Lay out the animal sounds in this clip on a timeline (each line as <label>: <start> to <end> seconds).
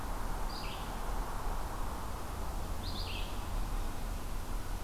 Blue-headed Vireo (Vireo solitarius): 0.0 to 4.8 seconds